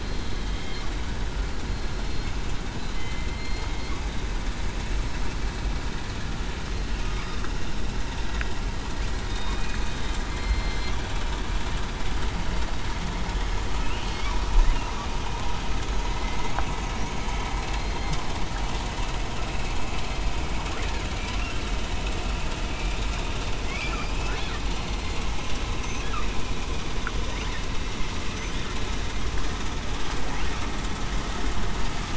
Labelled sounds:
2.9	3.7	killer whale, southern resident, 3.0 to 4.3 kHz
9.2	9.6	killer whale, southern resident, 3.7 to 3.8 kHz
10.3	10.9	killer whale, southern resident, 2.1 to 4.2 kHz
17.7	18.1	killer whale, southern resident, 4.1 to 4.2 kHz

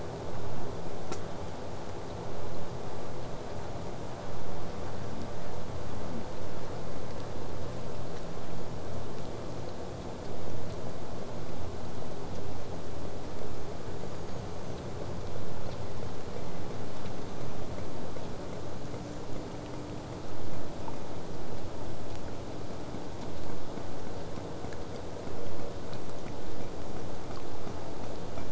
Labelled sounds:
14.1	14.9	killer whale, southern resident, whistle, 5.6 to 7.1 kHz
17.0	17.7	killer whale, southern resident, whistle, 5.4 to 6.8 kHz

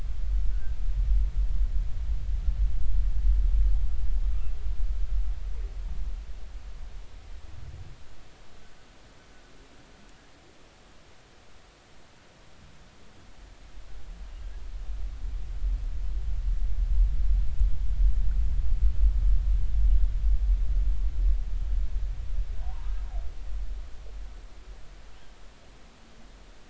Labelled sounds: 22.6	22.9	humpback whale, 0.80 to 1.1 kHz

